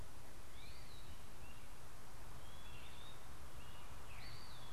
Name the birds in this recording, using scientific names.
Contopus virens, Myiarchus crinitus